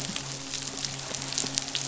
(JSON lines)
{"label": "biophony, midshipman", "recorder": "SoundTrap 500"}